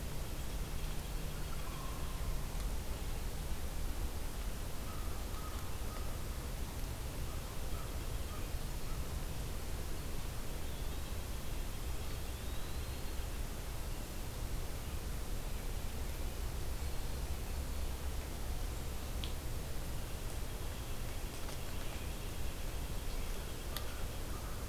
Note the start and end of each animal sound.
0.1s-2.2s: White-breasted Nuthatch (Sitta carolinensis)
1.4s-2.4s: American Crow (Corvus brachyrhynchos)
4.7s-6.3s: American Crow (Corvus brachyrhynchos)
7.1s-9.1s: American Crow (Corvus brachyrhynchos)
7.2s-8.6s: White-breasted Nuthatch (Sitta carolinensis)
10.5s-14.0s: White-breasted Nuthatch (Sitta carolinensis)
10.5s-11.2s: Eastern Wood-Pewee (Contopus virens)
11.9s-13.2s: Eastern Wood-Pewee (Contopus virens)
19.9s-24.3s: White-breasted Nuthatch (Sitta carolinensis)
23.6s-24.7s: American Crow (Corvus brachyrhynchos)

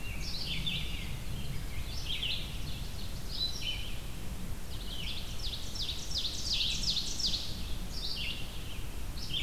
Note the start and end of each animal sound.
0.0s-2.0s: Rose-breasted Grosbeak (Pheucticus ludovicianus)
0.0s-9.4s: Red-eyed Vireo (Vireo olivaceus)
2.0s-3.7s: Ovenbird (Seiurus aurocapilla)
4.4s-7.7s: Ovenbird (Seiurus aurocapilla)

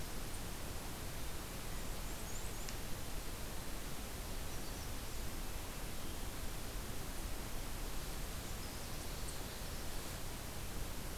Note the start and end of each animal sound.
1.4s-2.7s: Blackburnian Warbler (Setophaga fusca)

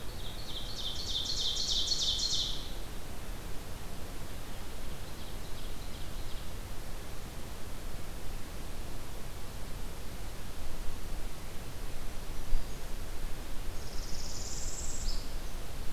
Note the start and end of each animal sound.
0.0s-2.8s: Ovenbird (Seiurus aurocapilla)
0.0s-3.0s: Red Crossbill (Loxia curvirostra)
4.8s-6.6s: Ovenbird (Seiurus aurocapilla)
11.9s-13.0s: Black-throated Green Warbler (Setophaga virens)
13.7s-15.3s: Northern Parula (Setophaga americana)

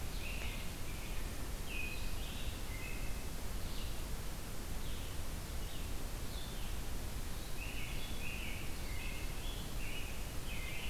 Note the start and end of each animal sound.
0.0s-3.4s: American Robin (Turdus migratorius)
0.0s-10.9s: Blue-headed Vireo (Vireo solitarius)
7.5s-10.9s: American Robin (Turdus migratorius)

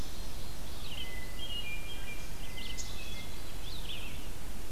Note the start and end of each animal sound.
0.0s-4.7s: Red-eyed Vireo (Vireo olivaceus)
1.0s-3.8s: Hermit Thrush (Catharus guttatus)

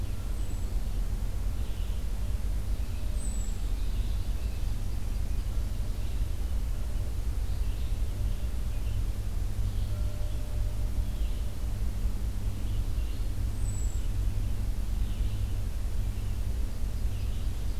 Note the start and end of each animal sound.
0.0s-17.8s: Red-eyed Vireo (Vireo olivaceus)
0.3s-0.7s: Hermit Thrush (Catharus guttatus)
3.1s-3.6s: Hermit Thrush (Catharus guttatus)
13.5s-14.1s: Hermit Thrush (Catharus guttatus)
16.6s-17.8s: American Goldfinch (Spinus tristis)

